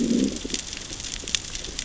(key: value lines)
label: biophony, growl
recorder: SoundTrap 600 or HydroMoth